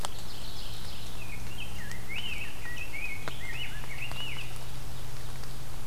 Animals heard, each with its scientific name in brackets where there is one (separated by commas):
Mourning Warbler (Geothlypis philadelphia), Rose-breasted Grosbeak (Pheucticus ludovicianus), Ovenbird (Seiurus aurocapilla)